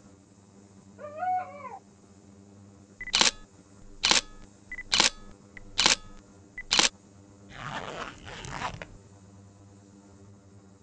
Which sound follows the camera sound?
zipper